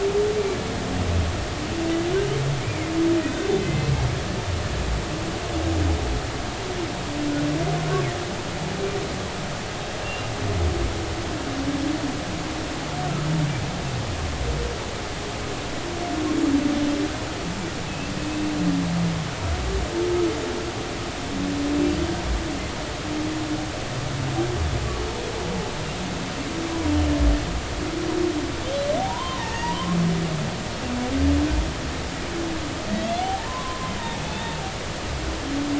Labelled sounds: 3.6	3.9	humpback whale, 2.0 to 2.1 kHz
10.0	10.3	humpback whale, 2.7 to 2.8 kHz
13.0	13.3	humpback whale, 1.2 to 1.5 kHz
17.9	18.1	humpback whale, 2.5 to 2.8 kHz
29.1	30.7	humpback whale, 0.83 to 2.0 kHz
32.9	34.6	humpback whale, 0.80 to 3.7 kHz

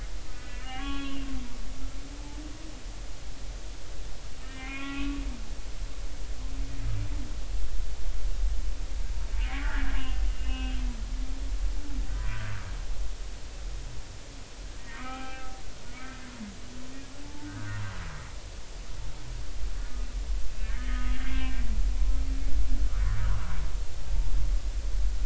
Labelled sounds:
0.3	1.3	humpback whale, 0.80 to 3.4 kHz
4.4	5.2	humpback whale, 1.0 to 3.4 kHz
9.6	10.8	humpback whale, 1.3 to 3.2 kHz
12.3	12.6	humpback whale, 1.3 to 1.8 kHz
14.8	15.6	humpback whale, 0.80 to 2.5 kHz
17.4	17.8	humpback whale, 1.4 to 1.7 kHz
20.6	21.2	humpback whale, 1.2 to 3.4 kHz
23.2	23.5	humpback whale, 0.93 to 1.3 kHz

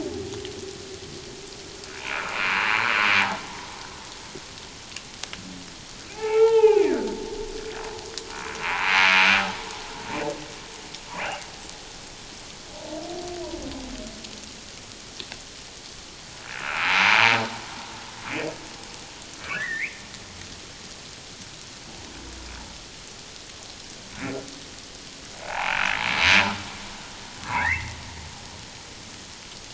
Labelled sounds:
2.0	2.6	humpback whale, 0.91 to 2.6 kHz
6.1	7.1	humpback whale, 0.78 to 3.3 kHz
16.6	17.4	humpback whale, 0.84 to 2.7 kHz
19.5	20.0	humpback whale, 1.4 to 2.7 kHz
25.4	25.8	humpback whale, 0.78 to 1.1 kHz
27.4	28.0	humpback whale, 0.78 to 2.3 kHz

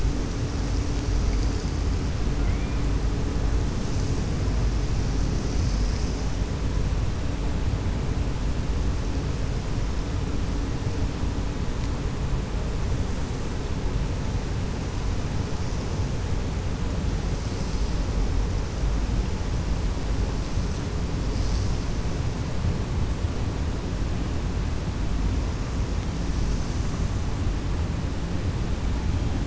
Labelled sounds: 2.3	2.8	killer whale, 1.4 to 2.6 kHz

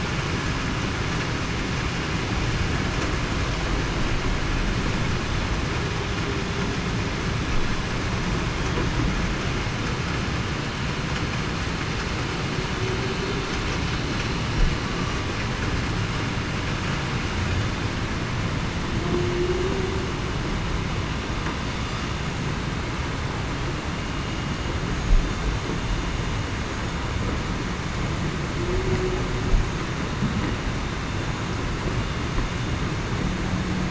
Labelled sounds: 19.1	19.9	humpback whale, 0.33 to 0.42 kHz
24.0	24.4	vessel noise, 6.5 to 6.6 kHz
28.6	29.0	humpback whale, 0.33 to 0.40 kHz

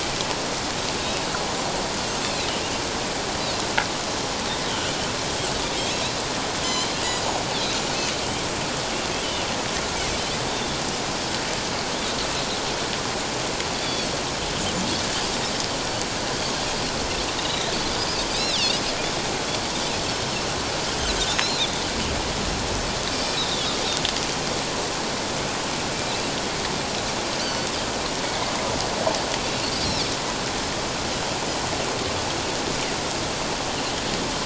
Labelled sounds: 4.7	4.9	Pacific white-sided dolphin, 2.6 to 3.3 kHz
7.0	7.3	Pacific white-sided dolphin, 4.9 to 5.0 kHz
13.8	14.1	Pacific white-sided dolphin, 3.3 to 3.6 kHz
17.4	17.7	Pacific white-sided dolphin, 3.6 to 4.1 kHz
18.3	18.6	Pacific white-sided dolphin, 3.1 to 4.2 kHz
23.1	23.7	Pacific white-sided dolphin, 3.2 to 5.5 kHz
27.4	27.7	Pacific white-sided dolphin, 4.4 to 4.7 kHz

